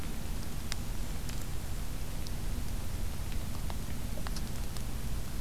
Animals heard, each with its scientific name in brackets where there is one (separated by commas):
Golden-crowned Kinglet (Regulus satrapa)